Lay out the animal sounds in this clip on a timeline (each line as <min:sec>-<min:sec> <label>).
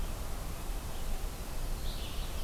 0:01.6-0:02.4 Red-eyed Vireo (Vireo olivaceus)